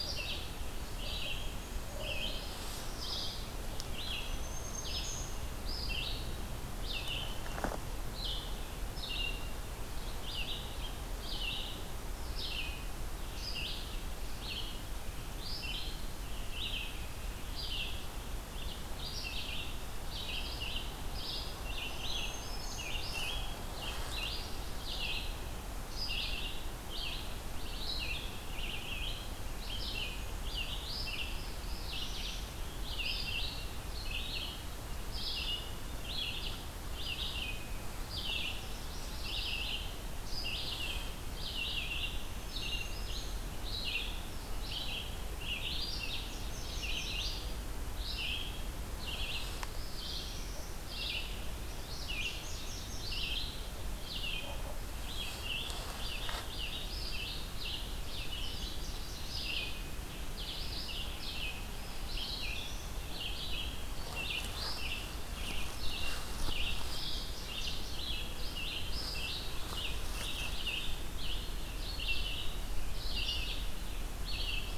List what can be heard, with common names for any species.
Red-eyed Vireo, Golden-crowned Kinglet, Black-throated Green Warbler, Northern Parula, Yellow-rumped Warbler